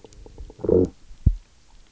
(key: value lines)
label: biophony, low growl
recorder: SoundTrap 300